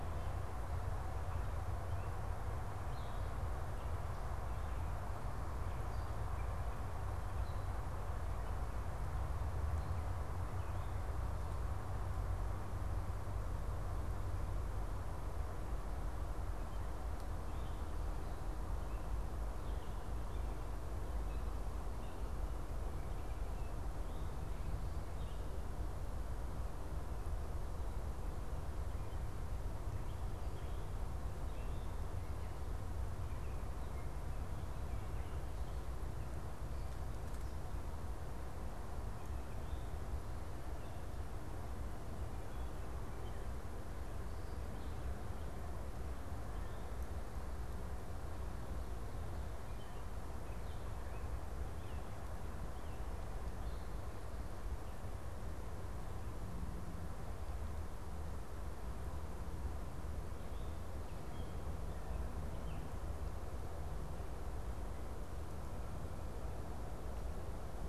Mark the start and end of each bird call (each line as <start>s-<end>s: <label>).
0.0s-37.9s: Gray Catbird (Dumetella carolinensis)
38.1s-67.9s: unidentified bird